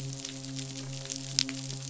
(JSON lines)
{"label": "biophony, midshipman", "recorder": "SoundTrap 500"}